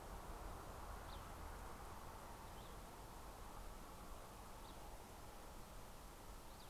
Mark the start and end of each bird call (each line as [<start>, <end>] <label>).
[0.00, 6.69] Cassin's Vireo (Vireo cassinii)